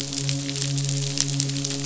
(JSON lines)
{"label": "biophony, midshipman", "recorder": "SoundTrap 500"}